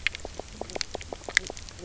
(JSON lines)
{"label": "biophony, knock croak", "recorder": "SoundTrap 300"}